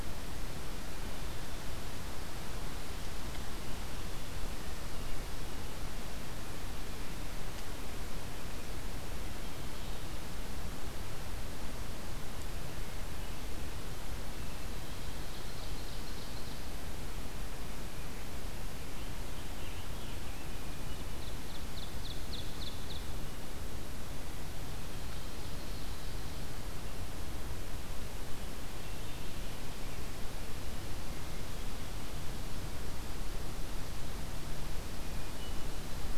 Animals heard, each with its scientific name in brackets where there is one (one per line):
Scarlet Tanager (Piranga olivacea)
Ovenbird (Seiurus aurocapilla)
Hermit Thrush (Catharus guttatus)